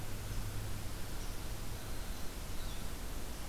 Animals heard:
forest ambience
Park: Marsh-Billings-Rockefeller National Historical Park